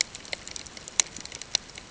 {"label": "ambient", "recorder": "HydroMoth"}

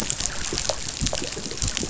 {"label": "biophony, chatter", "recorder": "SoundTrap 500"}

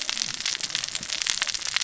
{"label": "biophony, cascading saw", "recorder": "SoundTrap 600 or HydroMoth"}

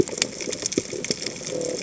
{"label": "biophony", "recorder": "HydroMoth"}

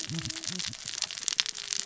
{"label": "biophony, cascading saw", "recorder": "SoundTrap 600 or HydroMoth"}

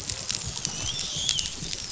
{"label": "biophony, dolphin", "recorder": "SoundTrap 500"}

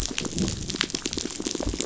{"label": "biophony", "recorder": "SoundTrap 500"}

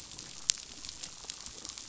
{"label": "biophony", "recorder": "SoundTrap 500"}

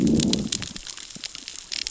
{"label": "biophony, growl", "recorder": "SoundTrap 600 or HydroMoth"}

